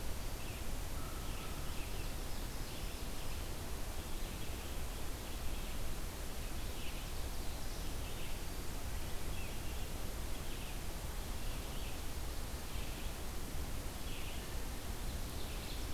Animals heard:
Ovenbird (Seiurus aurocapilla)
Red-eyed Vireo (Vireo olivaceus)
American Crow (Corvus brachyrhynchos)

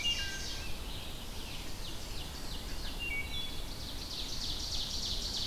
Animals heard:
Red-eyed Vireo (Vireo olivaceus)
Blackburnian Warbler (Setophaga fusca)
Ovenbird (Seiurus aurocapilla)
Scarlet Tanager (Piranga olivacea)
Wood Thrush (Hylocichla mustelina)

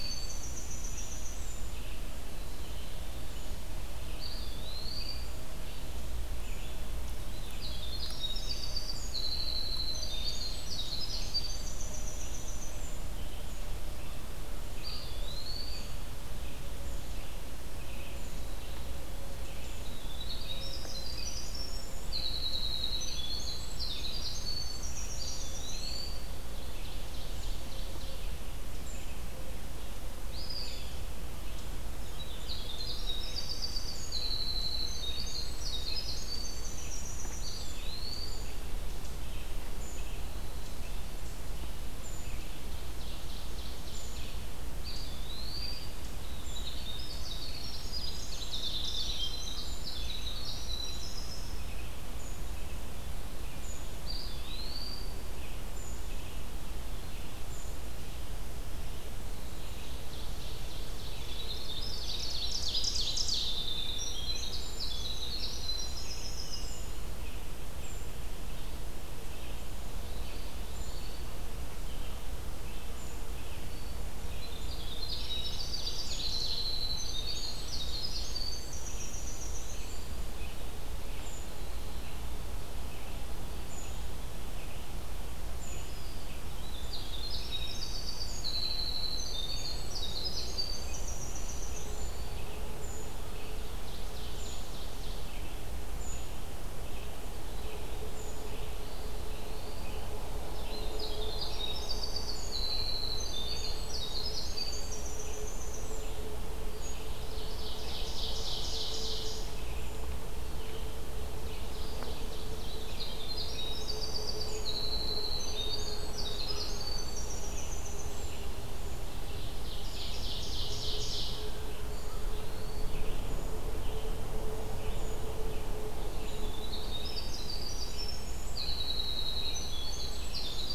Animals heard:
Eastern Wood-Pewee (Contopus virens)
Ovenbird (Seiurus aurocapilla)
Red-eyed Vireo (Vireo olivaceus)
American Crow (Corvus brachyrhynchos)
Winter Wren (Troglodytes hiemalis)
Black-capped Chickadee (Poecile atricapillus)

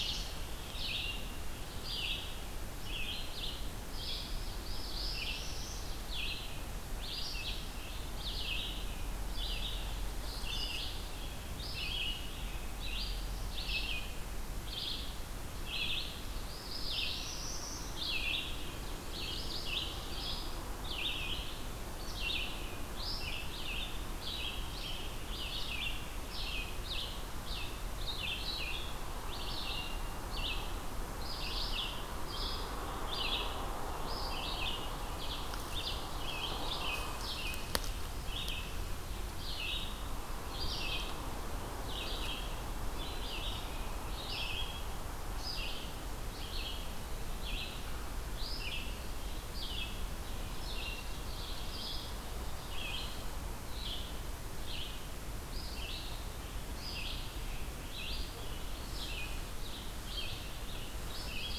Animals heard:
Northern Parula (Setophaga americana)
Red-eyed Vireo (Vireo olivaceus)

